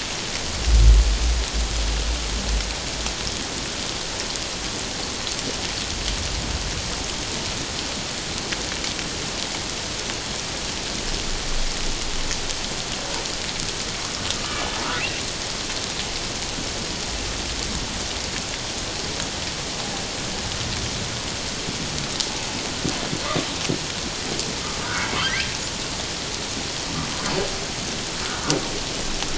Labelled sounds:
24.8	25.5	humpback whale, 1.0 to 1.7 kHz

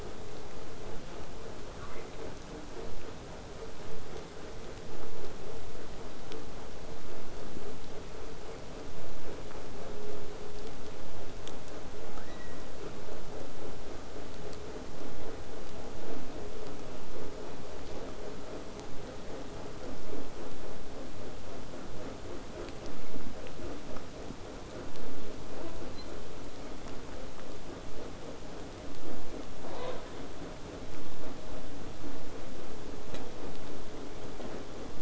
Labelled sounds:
1.8	2.3	killer whale, southern resident, 0.52 to 2.8 kHz
4.9	9.9	vessel noise, 0 to 8.0 kHz
12.1	12.7	killer whale, southern resident, 0.70 to 4.0 kHz
29.7	30.0	killer whale, southern resident, 0.28 to 6.6 kHz

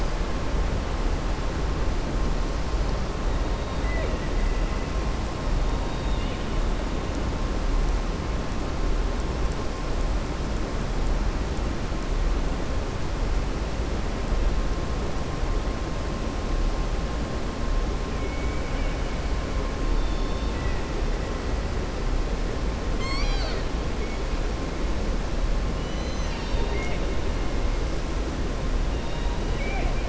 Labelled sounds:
5.8	6.5	killer whale, southern resident, 2.1 to 4.8 kHz
18.1	19.0	killer whale, southern resident, 1.5 to 3.0 kHz
22.9	23.7	killer whale, southern resident, 0.72 to 7.7 kHz
25.7	27.0	killer whale, southern resident, 0.91 to 6.1 kHz
29.5	30.0	killer whale, southern resident, 0.65 to 2.9 kHz

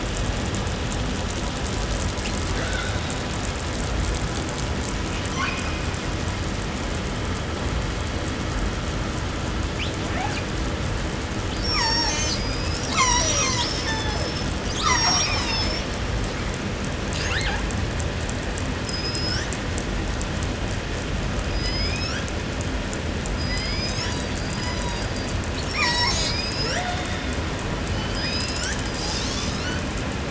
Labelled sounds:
2.1	3.3	killer whale, southern resident, 0.68 to 6.3 kHz
5.1	6.6	killer whale, 0.78 to 6.7 kHz
9.8	10.5	killer whale, southern resident, call S18, 0.25 to 8.0 kHz
11.4	12.5	killer whale, southern resident, call S36, 0.30 to 8.0 kHz
12.1	13.0	killer whale, southern resident, call S19, 1.6 to 8.0 kHz
12.8	15.9	killer whale, southern resident, call S36, 0.15 to 8.0 kHz
17.1	17.8	killer whale, southern resident, 0.42 to 8.0 kHz
18.6	19.7	killer whale, southern resident, call S19, 0.66 to 8.0 kHz
21.3	22.4	killer whale, southern resident, call S19, 0.81 to 8.0 kHz
23.2	24.4	killer whale, southern resident, call S19, 0.76 to 8.0 kHz
23.8	26.4	killer whale, southern resident, call S36, 0.30 to 8.0 kHz
26.1	27.2	killer whale, southern resident, call S19, 0.17 to 8.0 kHz
27.9	28.8	killer whale, southern resident, call S19, 0.51 to 8.0 kHz
28.9	30.0	killer whale, southern resident, 0.42 to 8.0 kHz

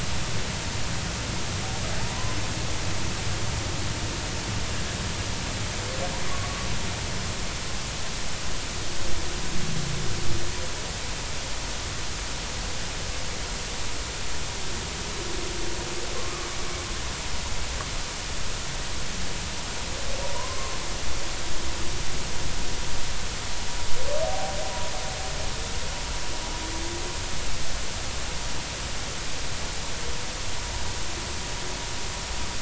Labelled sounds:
2.0	2.4	humpback whale, 0.80 to 1.1 kHz
20.2	20.8	humpback whale, 0.90 to 1.1 kHz
24.2	24.5	humpback whale, 0.80 to 0.83 kHz

